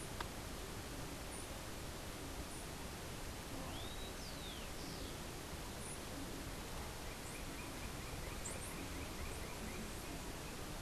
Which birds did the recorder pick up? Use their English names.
Rufous-collared Sparrow